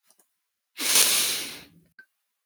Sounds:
Sniff